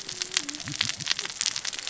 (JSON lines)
{"label": "biophony, cascading saw", "recorder": "SoundTrap 600 or HydroMoth"}